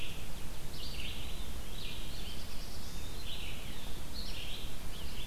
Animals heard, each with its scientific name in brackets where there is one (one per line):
Black-throated Blue Warbler (Setophaga caerulescens)
Red-eyed Vireo (Vireo olivaceus)